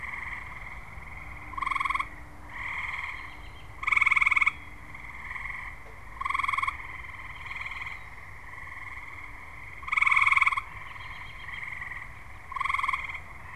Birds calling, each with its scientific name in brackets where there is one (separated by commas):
American Robin (Turdus migratorius)